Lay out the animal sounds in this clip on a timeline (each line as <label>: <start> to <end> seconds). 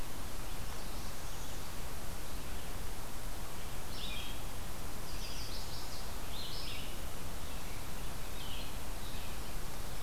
Northern Parula (Setophaga americana): 0.4 to 1.8 seconds
Red-eyed Vireo (Vireo olivaceus): 3.8 to 10.0 seconds
Chestnut-sided Warbler (Setophaga pensylvanica): 5.0 to 6.3 seconds